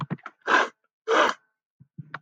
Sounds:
Sniff